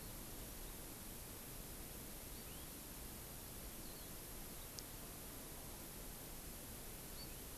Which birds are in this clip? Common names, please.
Hawaii Amakihi